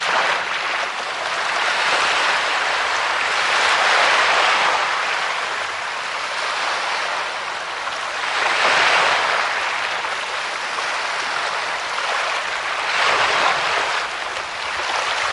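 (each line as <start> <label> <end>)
0.0 Waves periodically crash onto a beach. 15.3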